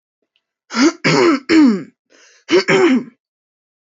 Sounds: Throat clearing